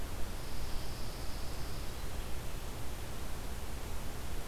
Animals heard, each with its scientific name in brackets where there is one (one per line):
Pine Warbler (Setophaga pinus)